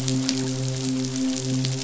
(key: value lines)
label: biophony, midshipman
recorder: SoundTrap 500